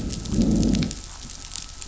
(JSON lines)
{"label": "anthrophony, boat engine", "recorder": "SoundTrap 500"}
{"label": "biophony, growl", "recorder": "SoundTrap 500"}